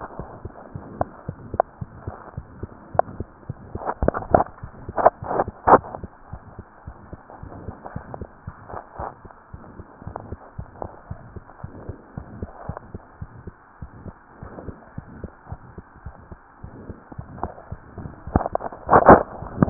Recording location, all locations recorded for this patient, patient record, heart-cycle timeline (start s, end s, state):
mitral valve (MV)
aortic valve (AV)+pulmonary valve (PV)+tricuspid valve (TV)+mitral valve (MV)
#Age: Child
#Sex: Female
#Height: 96.0 cm
#Weight: 16.0 kg
#Pregnancy status: False
#Murmur: Present
#Murmur locations: aortic valve (AV)+mitral valve (MV)+pulmonary valve (PV)+tricuspid valve (TV)
#Most audible location: aortic valve (AV)
#Systolic murmur timing: Mid-systolic
#Systolic murmur shape: Diamond
#Systolic murmur grading: III/VI or higher
#Systolic murmur pitch: Medium
#Systolic murmur quality: Harsh
#Diastolic murmur timing: nan
#Diastolic murmur shape: nan
#Diastolic murmur grading: nan
#Diastolic murmur pitch: nan
#Diastolic murmur quality: nan
#Outcome: Abnormal
#Campaign: 2015 screening campaign
0.00	6.32	unannotated
6.32	6.40	S1
6.40	6.52	systole
6.52	6.64	S2
6.64	6.84	diastole
6.84	6.96	S1
6.96	7.08	systole
7.08	7.18	S2
7.18	7.42	diastole
7.42	7.54	S1
7.54	7.62	systole
7.62	7.74	S2
7.74	7.94	diastole
7.94	8.08	S1
8.08	8.16	systole
8.16	8.28	S2
8.28	8.46	diastole
8.46	8.54	S1
8.54	8.66	systole
8.66	8.78	S2
8.78	8.98	diastole
8.98	9.07	S1
9.07	9.20	systole
9.20	9.30	S2
9.30	9.52	diastole
9.52	9.64	S1
9.64	9.74	systole
9.74	9.84	S2
9.84	10.05	diastole
10.05	10.15	S1
10.15	10.28	systole
10.28	10.38	S2
10.38	10.57	diastole
10.57	10.70	S1
10.70	10.80	systole
10.80	10.90	S2
10.90	11.10	diastole
11.10	11.22	S1
11.22	11.30	systole
11.30	11.42	S2
11.42	11.62	diastole
11.62	11.76	S1
11.76	11.86	systole
11.86	11.96	S2
11.96	12.16	diastole
12.16	12.30	S1
12.30	12.36	systole
12.36	12.50	S2
12.50	12.67	diastole
12.67	12.76	S1
12.76	12.91	systole
12.91	12.99	S2
12.99	13.18	diastole
13.18	13.30	S1
13.30	13.38	systole
13.38	13.52	S2
13.52	13.80	diastole
13.80	13.90	S1
13.90	14.03	systole
14.03	14.12	S2
14.12	14.40	diastole
14.40	14.54	S1
14.54	14.66	systole
14.66	14.78	S2
14.78	14.96	diastole
14.96	15.05	S1
15.05	15.22	systole
15.22	15.30	S2
15.30	15.49	diastole
15.49	15.60	S1
15.60	15.75	systole
15.75	15.83	S2
15.83	16.04	diastole
16.04	16.14	S1
16.14	16.28	systole
16.28	16.38	S2
16.38	16.62	diastole
16.62	16.72	S1
16.72	16.86	systole
16.86	16.96	S2
16.96	17.16	diastole
17.16	17.30	S1
17.30	19.70	unannotated